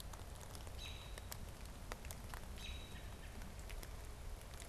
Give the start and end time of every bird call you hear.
0.0s-4.7s: American Robin (Turdus migratorius)

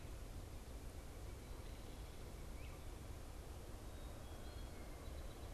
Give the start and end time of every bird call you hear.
0.0s-5.5s: Great Crested Flycatcher (Myiarchus crinitus)

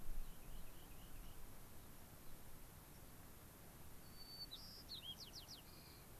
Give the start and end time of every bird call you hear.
0.1s-1.4s: Rock Wren (Salpinctes obsoletus)
3.9s-6.1s: White-crowned Sparrow (Zonotrichia leucophrys)

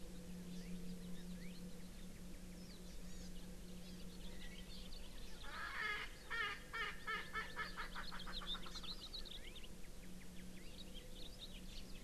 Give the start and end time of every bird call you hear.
2.6s-2.8s: Warbling White-eye (Zosterops japonicus)
3.1s-3.3s: Hawaii Amakihi (Chlorodrepanis virens)
3.8s-4.0s: Hawaii Amakihi (Chlorodrepanis virens)
5.4s-9.3s: Erckel's Francolin (Pternistis erckelii)

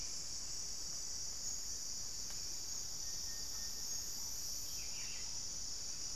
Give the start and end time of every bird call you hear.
0.0s-6.2s: Buff-throated Saltator (Saltator maximus)

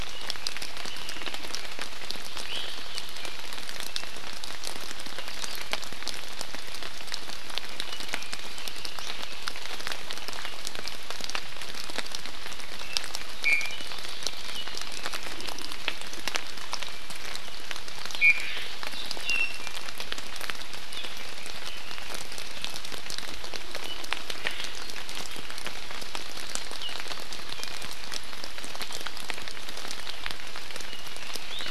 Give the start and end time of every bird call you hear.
2.5s-2.8s: Iiwi (Drepanis coccinea)
5.3s-5.6s: Hawaii Akepa (Loxops coccineus)
13.5s-13.9s: Iiwi (Drepanis coccinea)
18.2s-18.5s: Iiwi (Drepanis coccinea)
19.2s-19.8s: Iiwi (Drepanis coccinea)
21.1s-22.8s: Red-billed Leiothrix (Leiothrix lutea)
27.6s-27.9s: Iiwi (Drepanis coccinea)

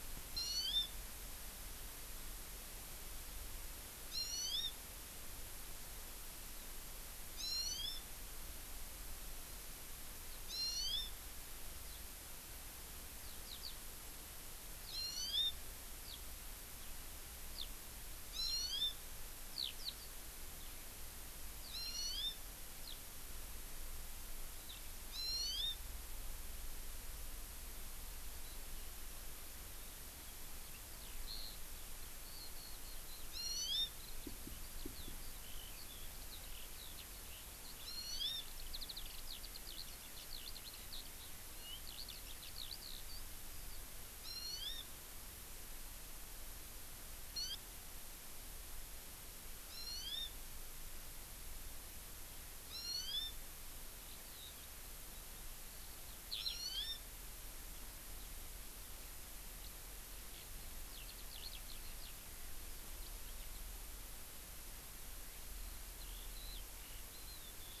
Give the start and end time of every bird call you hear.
0.3s-0.9s: Hawaii Amakihi (Chlorodrepanis virens)
4.1s-4.7s: Hawaii Amakihi (Chlorodrepanis virens)
7.3s-8.0s: Hawaii Amakihi (Chlorodrepanis virens)
10.4s-11.1s: Hawaii Amakihi (Chlorodrepanis virens)
11.8s-12.0s: Eurasian Skylark (Alauda arvensis)
13.1s-13.8s: Eurasian Skylark (Alauda arvensis)
14.8s-15.0s: Eurasian Skylark (Alauda arvensis)
14.8s-15.5s: Hawaii Amakihi (Chlorodrepanis virens)
16.0s-16.2s: Eurasian Skylark (Alauda arvensis)
17.5s-17.7s: Eurasian Skylark (Alauda arvensis)
18.2s-18.9s: Hawaii Amakihi (Chlorodrepanis virens)
18.4s-18.6s: Eurasian Skylark (Alauda arvensis)
19.5s-19.9s: Eurasian Skylark (Alauda arvensis)
21.6s-22.4s: Eurasian Skylark (Alauda arvensis)
22.8s-23.0s: Eurasian Skylark (Alauda arvensis)
24.7s-24.8s: House Finch (Haemorhous mexicanus)
25.1s-25.8s: Hawaii Amakihi (Chlorodrepanis virens)
30.6s-43.2s: Eurasian Skylark (Alauda arvensis)
33.3s-33.9s: Hawaii Amakihi (Chlorodrepanis virens)
37.8s-38.4s: Hawaii Amakihi (Chlorodrepanis virens)
44.2s-44.9s: Hawaii Amakihi (Chlorodrepanis virens)
47.4s-47.6s: Hawaii Amakihi (Chlorodrepanis virens)
49.7s-50.3s: Hawaii Amakihi (Chlorodrepanis virens)
52.7s-53.3s: Hawaii Amakihi (Chlorodrepanis virens)
54.0s-54.5s: Eurasian Skylark (Alauda arvensis)
56.3s-56.6s: Eurasian Skylark (Alauda arvensis)
56.3s-57.0s: Hawaii Amakihi (Chlorodrepanis virens)
58.1s-58.3s: Eurasian Skylark (Alauda arvensis)
59.6s-59.8s: Eurasian Skylark (Alauda arvensis)
60.3s-60.5s: Eurasian Skylark (Alauda arvensis)
60.9s-62.2s: Eurasian Skylark (Alauda arvensis)
65.9s-67.8s: Eurasian Skylark (Alauda arvensis)

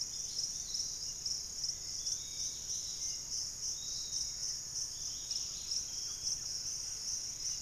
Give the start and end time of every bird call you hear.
0.0s-1.3s: unidentified bird
0.0s-7.6s: Dusky-capped Greenlet (Pachysylvia hypoxantha)
0.0s-7.6s: Piratic Flycatcher (Legatus leucophaius)
5.1s-7.5s: Thrush-like Wren (Campylorhynchus turdinus)

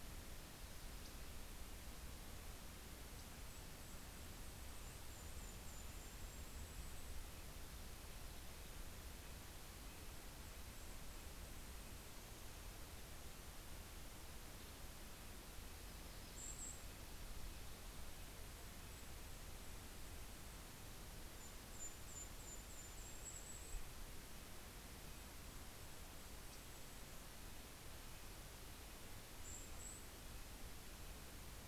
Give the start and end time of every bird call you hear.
0.7s-1.7s: Yellow-rumped Warbler (Setophaga coronata)
3.1s-7.5s: Golden-crowned Kinglet (Regulus satrapa)
3.4s-31.7s: Red-breasted Nuthatch (Sitta canadensis)
9.9s-12.7s: Golden-crowned Kinglet (Regulus satrapa)
15.5s-17.4s: Golden-crowned Kinglet (Regulus satrapa)
18.3s-25.4s: Golden-crowned Kinglet (Regulus satrapa)
25.9s-30.9s: Golden-crowned Kinglet (Regulus satrapa)

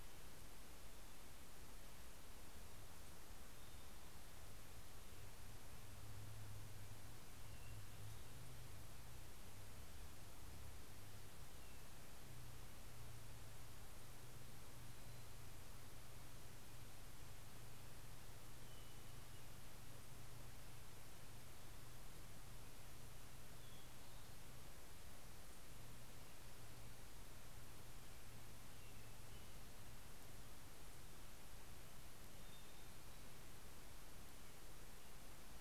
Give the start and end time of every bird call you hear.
3.2s-4.8s: Hermit Thrush (Catharus guttatus)
7.2s-8.7s: Hermit Thrush (Catharus guttatus)
18.1s-20.1s: Hermit Thrush (Catharus guttatus)
23.1s-25.3s: Hermit Thrush (Catharus guttatus)
27.9s-29.9s: Hermit Thrush (Catharus guttatus)
31.9s-33.9s: Hermit Thrush (Catharus guttatus)

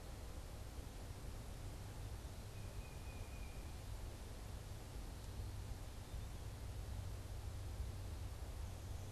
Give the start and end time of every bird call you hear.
2.4s-3.8s: Tufted Titmouse (Baeolophus bicolor)

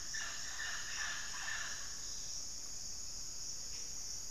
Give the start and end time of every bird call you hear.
0.0s-3.7s: White-rumped Sirystes (Sirystes albocinereus)
0.0s-4.3s: Mealy Parrot (Amazona farinosa)

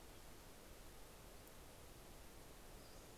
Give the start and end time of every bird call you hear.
2.7s-3.1s: Pacific-slope Flycatcher (Empidonax difficilis)

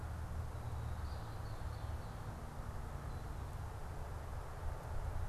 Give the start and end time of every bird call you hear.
0.0s-2.3s: Red-winged Blackbird (Agelaius phoeniceus)

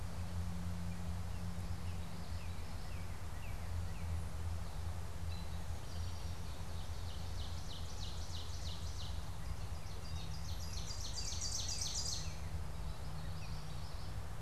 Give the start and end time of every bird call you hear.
1.2s-4.3s: Northern Cardinal (Cardinalis cardinalis)
1.8s-3.2s: Common Yellowthroat (Geothlypis trichas)
5.1s-6.6s: Eastern Towhee (Pipilo erythrophthalmus)
6.4s-12.6s: Ovenbird (Seiurus aurocapilla)
9.6s-12.7s: Northern Cardinal (Cardinalis cardinalis)
12.4s-14.4s: Common Yellowthroat (Geothlypis trichas)

